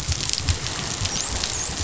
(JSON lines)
{"label": "biophony, dolphin", "recorder": "SoundTrap 500"}